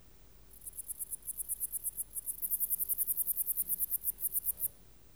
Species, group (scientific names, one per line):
Pholidoptera frivaldszkyi
Orthoptera